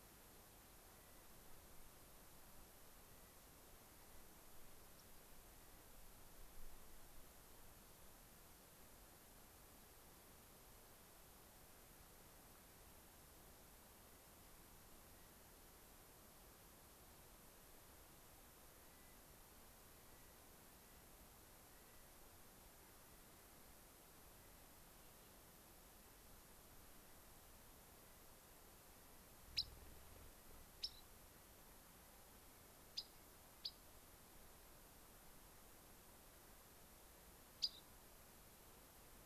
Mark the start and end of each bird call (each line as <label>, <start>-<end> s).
Clark's Nutcracker (Nucifraga columbiana), 0.8-1.2 s
Clark's Nutcracker (Nucifraga columbiana), 3.0-3.4 s
Rock Wren (Salpinctes obsoletus), 4.9-5.2 s
Clark's Nutcracker (Nucifraga columbiana), 14.9-15.3 s
Clark's Nutcracker (Nucifraga columbiana), 18.6-19.2 s
Clark's Nutcracker (Nucifraga columbiana), 19.9-20.3 s
Clark's Nutcracker (Nucifraga columbiana), 20.6-21.0 s
Clark's Nutcracker (Nucifraga columbiana), 21.6-22.1 s
Rock Wren (Salpinctes obsoletus), 29.5-29.8 s
Rock Wren (Salpinctes obsoletus), 30.7-31.0 s
Rock Wren (Salpinctes obsoletus), 32.9-33.1 s
Rock Wren (Salpinctes obsoletus), 33.5-33.8 s
Rock Wren (Salpinctes obsoletus), 37.5-37.8 s